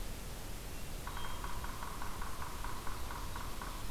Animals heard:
Yellow-bellied Sapsucker (Sphyrapicus varius)

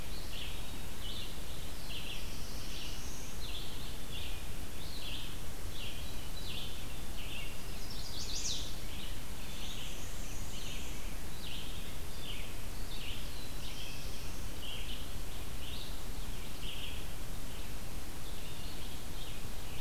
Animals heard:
Red-eyed Vireo (Vireo olivaceus), Black-and-white Warbler (Mniotilta varia), Black-throated Blue Warbler (Setophaga caerulescens), Chestnut-sided Warbler (Setophaga pensylvanica)

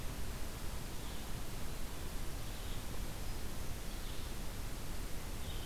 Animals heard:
Blue-headed Vireo (Vireo solitarius)

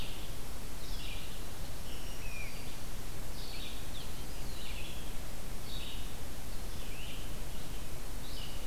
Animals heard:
Red-eyed Vireo (Vireo olivaceus), Black-throated Green Warbler (Setophaga virens), Great Crested Flycatcher (Myiarchus crinitus)

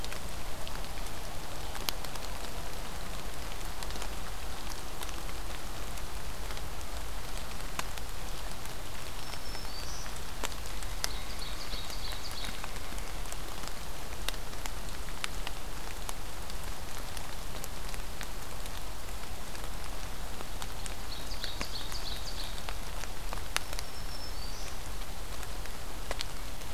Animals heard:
Ovenbird (Seiurus aurocapilla), Black-throated Green Warbler (Setophaga virens)

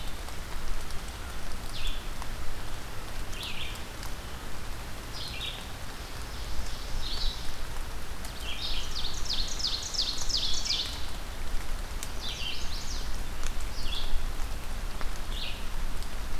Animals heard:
Red-eyed Vireo (Vireo olivaceus), Ovenbird (Seiurus aurocapilla), Chestnut-sided Warbler (Setophaga pensylvanica)

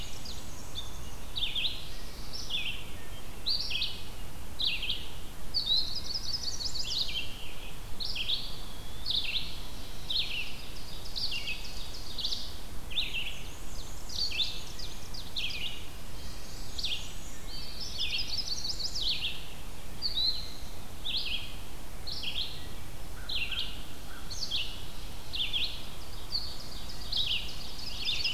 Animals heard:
American Crow (Corvus brachyrhynchos), Ovenbird (Seiurus aurocapilla), Red-eyed Vireo (Vireo olivaceus), Black-and-white Warbler (Mniotilta varia), Chestnut-sided Warbler (Setophaga pensylvanica), Eastern Wood-Pewee (Contopus virens)

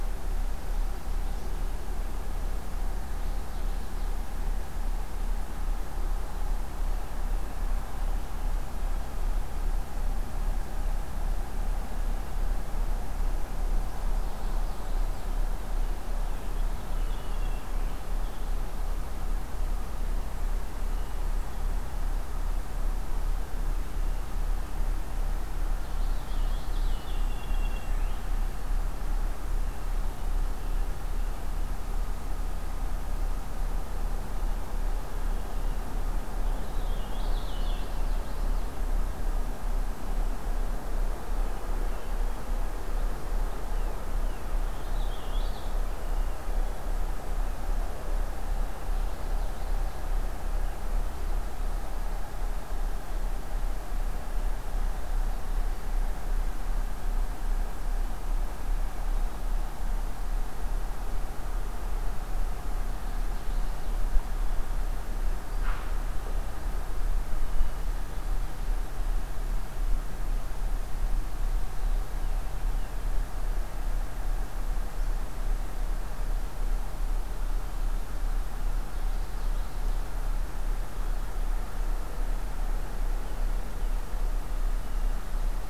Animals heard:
Purple Finch (Haemorhous purpureus), Common Yellowthroat (Geothlypis trichas), American Robin (Turdus migratorius)

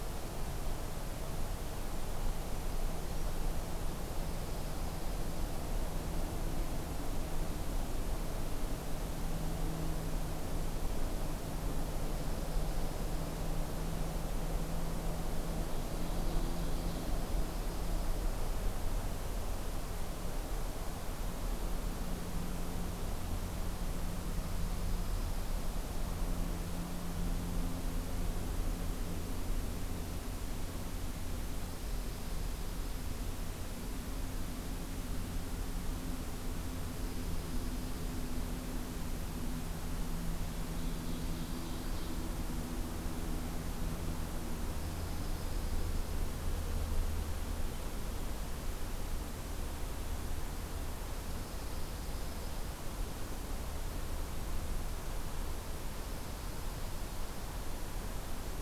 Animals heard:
Ovenbird (Seiurus aurocapilla), Dark-eyed Junco (Junco hyemalis)

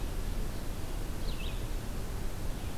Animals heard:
Red-eyed Vireo (Vireo olivaceus)

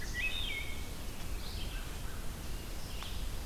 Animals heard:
Red-eyed Vireo (Vireo olivaceus), Wood Thrush (Hylocichla mustelina), American Crow (Corvus brachyrhynchos)

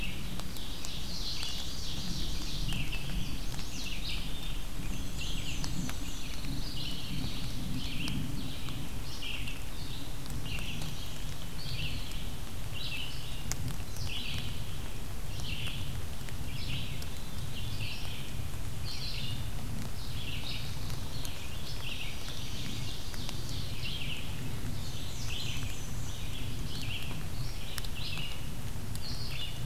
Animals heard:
Pine Warbler (Setophaga pinus), Chestnut-sided Warbler (Setophaga pensylvanica), Black-and-white Warbler (Mniotilta varia), Red-eyed Vireo (Vireo olivaceus), Ovenbird (Seiurus aurocapilla)

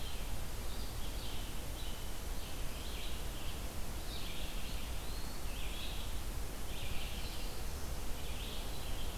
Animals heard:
Red-eyed Vireo (Vireo olivaceus), Eastern Wood-Pewee (Contopus virens)

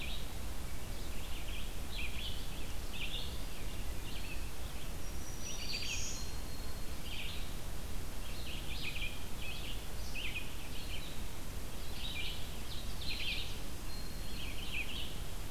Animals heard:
Black-throated Green Warbler (Setophaga virens), Red-eyed Vireo (Vireo olivaceus)

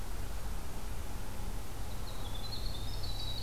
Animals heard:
Winter Wren (Troglodytes hiemalis)

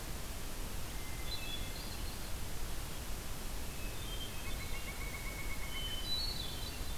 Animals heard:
Hermit Thrush (Catharus guttatus), unidentified call

